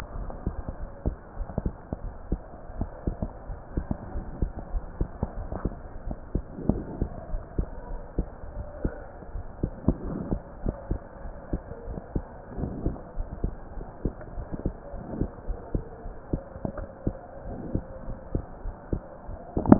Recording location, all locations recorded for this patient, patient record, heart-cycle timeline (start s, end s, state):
pulmonary valve (PV)
aortic valve (AV)+pulmonary valve (PV)+tricuspid valve (TV)+mitral valve (MV)
#Age: Child
#Sex: Male
#Height: 131.0 cm
#Weight: 25.9 kg
#Pregnancy status: False
#Murmur: Absent
#Murmur locations: nan
#Most audible location: nan
#Systolic murmur timing: nan
#Systolic murmur shape: nan
#Systolic murmur grading: nan
#Systolic murmur pitch: nan
#Systolic murmur quality: nan
#Diastolic murmur timing: nan
#Diastolic murmur shape: nan
#Diastolic murmur grading: nan
#Diastolic murmur pitch: nan
#Diastolic murmur quality: nan
#Outcome: Normal
#Campaign: 2015 screening campaign
0.00	11.02	unannotated
11.02	11.24	diastole
11.24	11.32	S1
11.32	11.51	systole
11.51	11.61	S2
11.61	11.86	diastole
11.86	11.97	S1
11.97	12.14	systole
12.14	12.25	S2
12.25	12.56	diastole
12.56	12.72	S1
12.72	12.84	systole
12.84	12.96	S2
12.96	13.18	diastole
13.18	13.28	S1
13.28	13.40	systole
13.40	13.54	S2
13.54	13.76	diastole
13.76	13.86	S1
13.86	14.04	systole
14.04	14.14	S2
14.14	14.36	diastole
14.36	14.48	S1
14.48	14.64	systole
14.64	14.76	S2
14.76	14.94	diastole
14.94	15.02	S1
15.02	15.16	systole
15.16	15.30	S2
15.30	15.47	diastole
15.47	15.58	S1
15.58	15.74	systole
15.74	15.82	S2
15.82	16.04	diastole
16.04	16.14	S1
16.14	16.32	systole
16.32	16.43	S2
16.43	16.74	diastole
16.74	16.88	S1
16.88	17.04	systole
17.04	17.20	S2
17.20	17.46	diastole
17.46	17.56	S1
17.56	17.70	systole
17.70	17.84	S2
17.84	18.06	diastole
18.06	18.18	S1
18.18	18.33	systole
18.33	18.45	S2
18.45	18.64	diastole
18.64	18.74	S1
18.74	18.88	systole
18.88	19.04	S2
19.04	19.28	diastole
19.28	19.79	unannotated